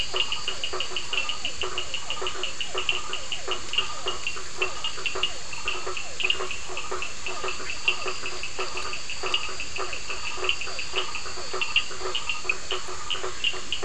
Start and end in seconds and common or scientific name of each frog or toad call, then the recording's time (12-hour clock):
0.0	13.8	blacksmith tree frog
0.0	13.8	two-colored oval frog
0.0	13.8	Cochran's lime tree frog
0.1	11.5	Physalaemus cuvieri
10:15pm